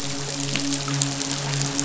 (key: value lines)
label: biophony, midshipman
recorder: SoundTrap 500